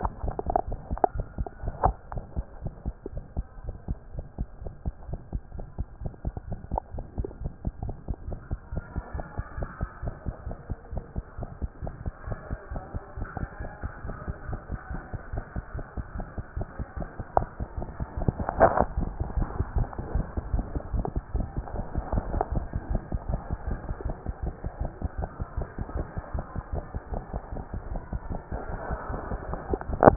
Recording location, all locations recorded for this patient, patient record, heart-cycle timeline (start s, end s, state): mitral valve (MV)
aortic valve (AV)+mitral valve (MV)
#Age: Infant
#Sex: Female
#Height: 62.0 cm
#Weight: 5.96 kg
#Pregnancy status: False
#Murmur: Absent
#Murmur locations: nan
#Most audible location: nan
#Systolic murmur timing: nan
#Systolic murmur shape: nan
#Systolic murmur grading: nan
#Systolic murmur pitch: nan
#Systolic murmur quality: nan
#Diastolic murmur timing: nan
#Diastolic murmur shape: nan
#Diastolic murmur grading: nan
#Diastolic murmur pitch: nan
#Diastolic murmur quality: nan
#Outcome: Abnormal
#Campaign: 2014 screening campaign
0.00	2.05	unannotated
2.05	2.14	diastole
2.14	2.22	S1
2.22	2.36	systole
2.36	2.44	S2
2.44	2.62	diastole
2.62	2.72	S1
2.72	2.86	systole
2.86	2.94	S2
2.94	3.14	diastole
3.14	3.24	S1
3.24	3.36	systole
3.36	3.46	S2
3.46	3.64	diastole
3.64	3.74	S1
3.74	3.88	systole
3.88	3.98	S2
3.98	4.14	diastole
4.14	4.24	S1
4.24	4.38	systole
4.38	4.48	S2
4.48	4.64	diastole
4.64	4.74	S1
4.74	4.86	systole
4.86	4.92	S2
4.92	5.08	diastole
5.08	5.20	S1
5.20	5.32	systole
5.32	5.42	S2
5.42	5.56	diastole
5.56	5.66	S1
5.66	5.78	systole
5.78	5.86	S2
5.86	6.02	diastole
6.02	6.12	S1
6.12	6.24	systole
6.24	6.34	S2
6.34	6.48	diastole
6.48	6.60	S1
6.60	6.72	systole
6.72	6.80	S2
6.80	6.94	diastole
6.94	7.04	S1
7.04	7.18	systole
7.18	7.28	S2
7.28	7.42	diastole
7.42	7.52	S1
7.52	7.66	systole
7.66	7.72	S2
7.72	7.84	diastole
7.84	7.94	S1
7.94	8.08	systole
8.08	8.16	S2
8.16	8.28	diastole
8.28	8.38	S1
8.38	8.50	systole
8.50	8.58	S2
8.58	8.72	diastole
8.72	8.84	S1
8.84	8.96	systole
8.96	9.02	S2
9.02	9.14	diastole
9.14	9.24	S1
9.24	9.36	systole
9.36	9.44	S2
9.44	9.58	diastole
9.58	9.68	S1
9.68	9.80	systole
9.80	9.88	S2
9.88	10.04	diastole
10.04	10.14	S1
10.14	10.26	systole
10.26	10.34	S2
10.34	10.46	diastole
10.46	10.56	S1
10.56	10.68	systole
10.68	10.76	S2
10.76	10.92	diastole
10.92	11.04	S1
11.04	11.16	systole
11.16	11.24	S2
11.24	11.40	diastole
11.40	11.48	S1
11.48	11.62	systole
11.62	11.70	S2
11.70	11.84	diastole
11.84	11.94	S1
11.94	12.04	systole
12.04	12.12	S2
12.12	12.28	diastole
12.28	12.38	S1
12.38	12.50	systole
12.50	12.58	S2
12.58	12.72	diastole
12.72	12.82	S1
12.82	12.94	systole
12.94	13.02	S2
13.02	13.18	diastole
13.18	13.28	S1
13.28	13.40	systole
13.40	13.48	S2
13.48	13.60	diastole
13.60	13.70	S1
13.70	13.82	systole
13.82	13.92	S2
13.92	14.06	diastole
14.06	14.16	S1
14.16	14.26	systole
14.26	14.34	S2
14.34	14.48	diastole
14.48	14.60	S1
14.60	14.70	systole
14.70	14.78	S2
14.78	14.92	diastole
14.92	15.02	S1
15.02	15.12	systole
15.12	15.20	S2
15.20	15.34	diastole
15.34	15.44	S1
15.44	15.56	systole
15.56	15.64	S2
15.64	15.74	diastole
15.74	15.84	S1
15.84	15.96	systole
15.96	16.04	S2
16.04	16.16	diastole
16.16	16.26	S1
16.26	16.36	systole
16.36	16.44	S2
16.44	16.56	diastole
16.56	16.66	S1
16.66	16.78	systole
16.78	16.86	S2
16.86	16.98	diastole
16.98	17.08	S1
17.08	17.18	systole
17.18	17.24	S2
17.24	17.36	diastole
17.36	17.48	S1
17.48	17.60	systole
17.60	17.68	S2
17.68	17.80	diastole
17.80	17.88	S1
17.88	18.00	systole
18.00	18.06	S2
18.06	18.18	diastole
18.18	18.32	S1
18.32	18.42	systole
18.42	18.46	S2
18.46	18.58	diastole
18.58	18.70	S1
18.70	18.80	systole
18.80	18.86	S2
18.86	18.98	diastole
18.98	19.10	S1
19.10	19.22	systole
19.22	19.28	S2
19.28	19.36	diastole
19.36	19.48	S1
19.48	19.60	systole
19.60	19.62	S2
19.62	19.76	diastole
19.76	19.88	S1
19.88	20.02	systole
20.02	20.04	S2
20.04	20.14	diastole
20.14	20.26	S1
20.26	20.38	systole
20.38	20.42	S2
20.42	20.52	diastole
20.52	20.66	S1
20.66	20.74	systole
20.74	20.80	S2
20.80	20.92	diastole
20.92	21.06	S1
21.06	21.16	systole
21.16	21.22	S2
21.22	21.34	diastole
21.34	21.48	S1
21.48	21.58	systole
21.58	21.64	S2
21.64	21.76	diastole
21.76	21.86	S1
21.86	21.96	systole
21.96	22.02	S2
22.02	22.14	diastole
22.14	22.24	S1
22.24	22.32	systole
22.32	22.40	S2
22.40	22.52	diastole
22.52	22.64	S1
22.64	22.76	systole
22.76	22.78	S2
22.78	22.90	diastole
22.90	23.02	S1
23.02	23.14	systole
23.14	23.18	S2
23.18	23.28	diastole
23.28	23.40	S1
23.40	23.52	systole
23.52	23.56	S2
23.56	23.68	diastole
23.68	23.78	S1
23.78	23.88	systole
23.88	23.94	S2
23.94	24.06	diastole
24.06	24.16	S1
24.16	24.26	systole
24.26	24.34	S2
24.34	24.44	diastole
24.44	24.54	S1
24.54	24.64	systole
24.64	24.70	S2
24.70	24.80	diastole
24.80	24.90	S1
24.90	25.04	systole
25.04	25.08	S2
25.08	25.18	diastole
25.18	25.28	S1
25.28	25.40	systole
25.40	25.46	S2
25.46	25.58	diastole
25.58	25.68	S1
25.68	25.78	systole
25.78	25.86	S2
25.86	25.96	diastole
25.96	26.06	S1
26.06	26.16	systole
26.16	26.22	S2
26.22	26.34	diastole
26.34	26.44	S1
26.44	26.56	systole
26.56	26.62	S2
26.62	26.74	diastole
26.74	26.84	S1
26.84	26.94	systole
26.94	27.00	S2
27.00	27.12	diastole
27.12	27.22	S1
27.22	27.34	systole
27.34	27.42	S2
27.42	27.58	diastole
27.58	27.64	S1
27.64	27.74	systole
27.74	27.80	S2
27.80	27.92	diastole
27.92	28.02	S1
28.02	28.14	systole
28.14	28.20	S2
28.20	28.30	diastole
28.30	28.40	S1
28.40	28.52	systole
28.52	28.58	S2
28.58	28.70	diastole
28.70	28.78	S1
28.78	28.90	systole
28.90	28.96	S2
28.96	29.10	diastole
29.10	29.20	S1
29.20	29.30	systole
29.30	29.38	S2
29.38	29.50	diastole
29.50	29.58	S1
29.58	29.70	systole
29.70	29.78	S2
29.78	29.91	diastole
29.91	29.99	S1
29.99	30.16	unannotated